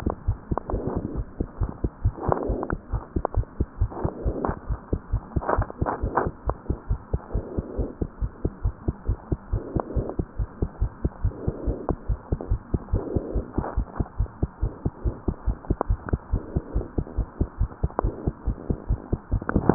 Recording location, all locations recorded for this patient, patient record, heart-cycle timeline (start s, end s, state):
pulmonary valve (PV)
aortic valve (AV)+pulmonary valve (PV)+tricuspid valve (TV)+mitral valve (MV)
#Age: Child
#Sex: Female
#Height: 95.0 cm
#Weight: 14.0 kg
#Pregnancy status: False
#Murmur: Absent
#Murmur locations: nan
#Most audible location: nan
#Systolic murmur timing: nan
#Systolic murmur shape: nan
#Systolic murmur grading: nan
#Systolic murmur pitch: nan
#Systolic murmur quality: nan
#Diastolic murmur timing: nan
#Diastolic murmur shape: nan
#Diastolic murmur grading: nan
#Diastolic murmur pitch: nan
#Diastolic murmur quality: nan
#Outcome: Abnormal
#Campaign: 2015 screening campaign
0.00	6.38	unannotated
6.38	6.46	diastole
6.46	6.56	S1
6.56	6.68	systole
6.68	6.78	S2
6.78	6.89	diastole
6.89	6.97	S1
6.97	7.11	systole
7.11	7.20	S2
7.20	7.33	diastole
7.33	7.44	S1
7.44	7.56	systole
7.56	7.66	S2
7.66	7.78	diastole
7.78	7.90	S1
7.90	8.00	systole
8.00	8.10	S2
8.10	8.22	diastole
8.22	8.30	S1
8.30	8.44	systole
8.44	8.52	S2
8.52	8.64	diastole
8.64	8.74	S1
8.74	8.88	systole
8.88	8.96	S2
8.96	9.07	diastole
9.07	9.17	S1
9.17	9.30	systole
9.30	9.38	S2
9.38	9.52	diastole
9.52	9.64	S1
9.64	9.74	systole
9.74	9.84	S2
9.84	9.96	diastole
9.96	10.08	S1
10.08	10.17	systole
10.17	10.26	S2
10.26	10.38	diastole
10.38	10.48	S1
10.48	10.59	systole
10.59	10.70	S2
10.70	10.79	diastole
10.79	10.90	S1
10.90	11.03	systole
11.03	11.12	S2
11.12	11.22	diastole
11.22	11.34	S1
11.34	11.46	systole
11.46	11.54	S2
11.54	11.66	diastole
11.66	11.78	S1
11.78	11.89	systole
11.89	11.98	S2
11.98	12.08	diastole
12.08	12.18	S1
12.18	12.29	systole
12.29	12.40	S2
12.40	12.50	diastole
12.50	12.60	S1
12.60	12.71	systole
12.71	12.82	S2
12.82	12.92	diastole
12.92	13.04	S1
13.04	13.14	systole
13.14	13.24	S2
13.24	13.34	diastole
13.34	13.46	S1
13.46	13.55	systole
13.55	13.64	S2
13.64	13.76	diastole
13.76	13.88	S1
13.88	13.97	systole
13.97	14.08	S2
14.08	14.18	diastole
14.18	14.30	S1
14.30	14.40	systole
14.40	14.48	S2
14.48	14.61	diastole
14.61	14.72	S1
14.72	14.83	systole
14.83	14.92	S2
14.92	15.02	diastole
15.02	15.16	S1
15.16	15.26	systole
15.26	15.34	S2
15.34	15.46	diastole
15.46	15.58	S1
15.58	15.68	systole
15.68	15.78	S2
15.78	15.88	diastole
15.88	15.98	S1
15.98	16.11	systole
16.11	16.18	S2
16.18	16.32	diastole
16.32	16.42	S1
16.42	16.54	systole
16.54	16.64	S2
16.64	16.74	diastole
16.74	16.86	S1
16.86	16.95	systole
16.95	17.06	S2
17.06	17.17	diastole
17.17	17.28	S1
17.28	17.40	systole
17.40	17.48	S2
17.48	17.59	diastole
17.59	17.70	S1
17.70	17.81	systole
17.81	17.92	S2
17.92	18.01	diastole
18.01	18.14	S1
18.14	18.24	systole
18.24	18.32	S2
18.32	18.45	diastole
18.45	18.56	S1
18.56	18.67	systole
18.67	18.78	S2
18.78	18.88	diastole
18.88	19.00	S1
19.00	19.10	systole
19.10	19.20	S2
19.20	19.28	diastole
19.28	19.74	unannotated